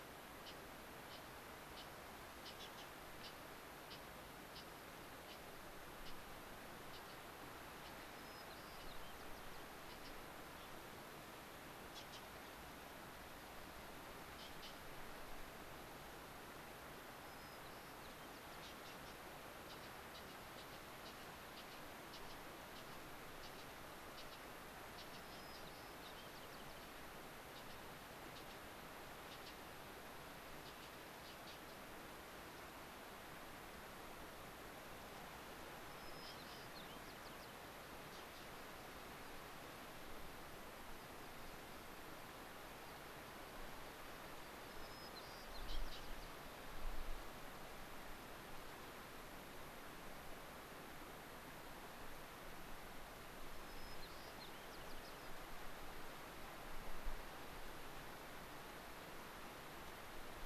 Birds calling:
American Pipit (Anthus rubescens), Gray-crowned Rosy-Finch (Leucosticte tephrocotis), White-crowned Sparrow (Zonotrichia leucophrys)

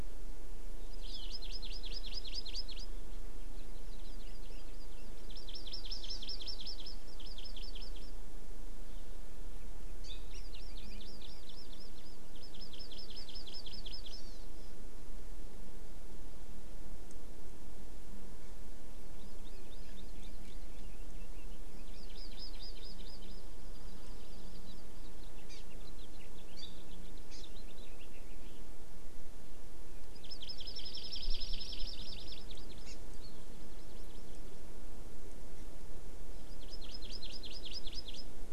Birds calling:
House Finch (Haemorhous mexicanus), Hawaii Amakihi (Chlorodrepanis virens), Hawaii Creeper (Loxops mana)

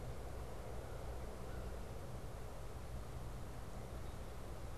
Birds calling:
American Crow (Corvus brachyrhynchos)

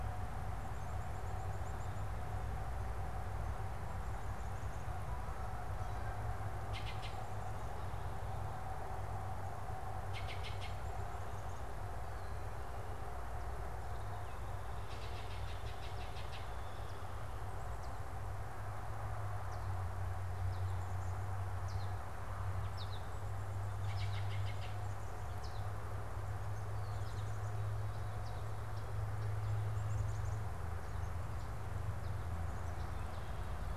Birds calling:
American Goldfinch (Spinus tristis), Black-capped Chickadee (Poecile atricapillus), Baltimore Oriole (Icterus galbula)

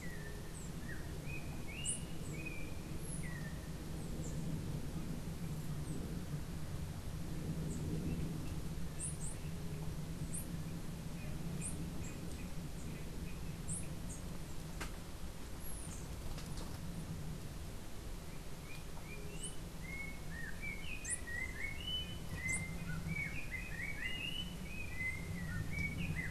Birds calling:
unidentified bird, Yellow-backed Oriole (Icterus chrysater)

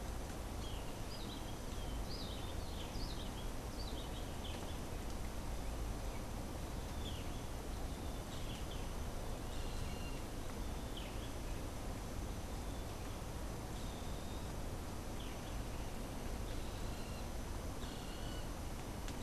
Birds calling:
Cabanis's Wren (Cantorchilus modestus), Boat-billed Flycatcher (Megarynchus pitangua)

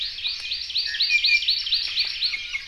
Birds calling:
Hawaii Amakihi (Chlorodrepanis virens), Iiwi (Drepanis coccinea)

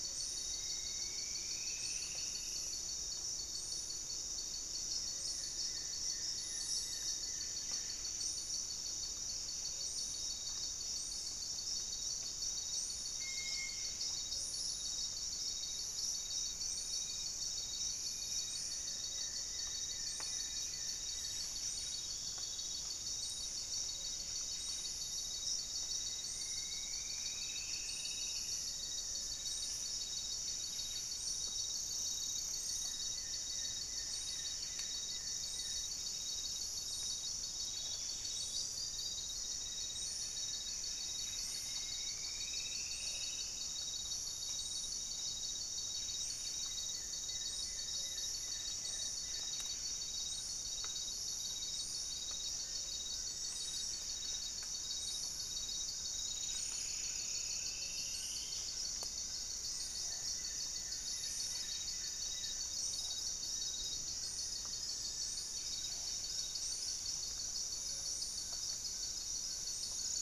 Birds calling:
Dusky-capped Greenlet (Pachysylvia hypoxantha), Ringed Woodpecker (Celeus torquatus), Goeldi's Antbird (Akletos goeldii), Buff-breasted Wren (Cantorchilus leucotis), Rufous-fronted Antthrush (Formicarius rufifrons), Striped Woodcreeper (Xiphorhynchus obsoletus), Amazonian Trogon (Trogon ramonianus), Gray-fronted Dove (Leptotila rufaxilla), Paradise Tanager (Tangara chilensis), Black-faced Antthrush (Formicarius analis), unidentified bird

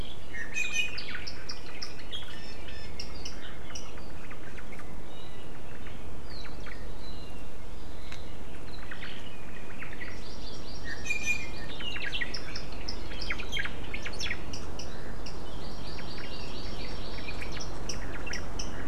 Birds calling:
Iiwi (Drepanis coccinea), Omao (Myadestes obscurus), Hawaii Amakihi (Chlorodrepanis virens)

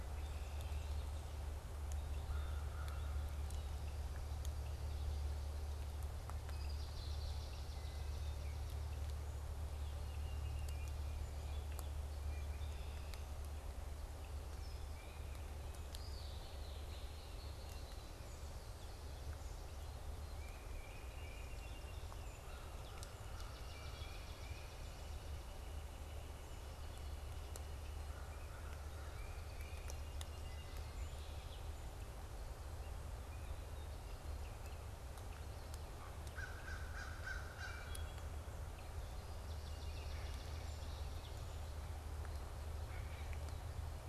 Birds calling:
Great Blue Heron (Ardea herodias), Red-winged Blackbird (Agelaius phoeniceus), Tufted Titmouse (Baeolophus bicolor), Northern Flicker (Colaptes auratus), American Crow (Corvus brachyrhynchos), Wood Thrush (Hylocichla mustelina), Song Sparrow (Melospiza melodia), Swamp Sparrow (Melospiza georgiana)

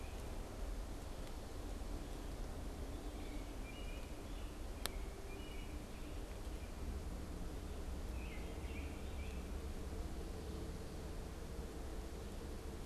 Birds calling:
American Robin (Turdus migratorius)

